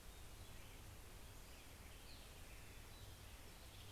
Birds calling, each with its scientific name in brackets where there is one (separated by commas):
Western Tanager (Piranga ludoviciana), Black-headed Grosbeak (Pheucticus melanocephalus)